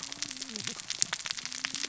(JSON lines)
{"label": "biophony, cascading saw", "recorder": "SoundTrap 600 or HydroMoth"}